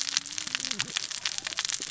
{"label": "biophony, cascading saw", "recorder": "SoundTrap 600 or HydroMoth"}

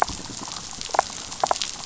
{"label": "biophony, damselfish", "recorder": "SoundTrap 500"}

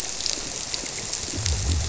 {"label": "biophony", "recorder": "SoundTrap 300"}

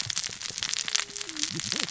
{"label": "biophony, cascading saw", "recorder": "SoundTrap 600 or HydroMoth"}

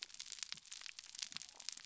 {"label": "biophony", "recorder": "SoundTrap 300"}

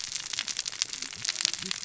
{"label": "biophony, cascading saw", "recorder": "SoundTrap 600 or HydroMoth"}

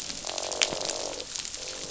{"label": "biophony, croak", "recorder": "SoundTrap 500"}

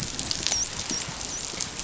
{"label": "biophony, dolphin", "recorder": "SoundTrap 500"}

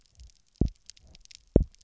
{"label": "biophony, double pulse", "recorder": "SoundTrap 300"}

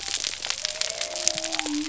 {"label": "biophony", "recorder": "SoundTrap 300"}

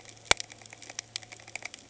{"label": "anthrophony, boat engine", "recorder": "HydroMoth"}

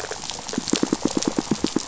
{"label": "biophony, pulse", "recorder": "SoundTrap 500"}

